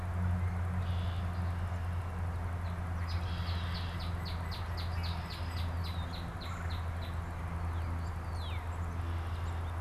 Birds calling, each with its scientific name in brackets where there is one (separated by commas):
Red-bellied Woodpecker (Melanerpes carolinus), Red-winged Blackbird (Agelaius phoeniceus), Northern Cardinal (Cardinalis cardinalis)